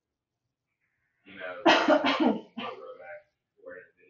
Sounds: Cough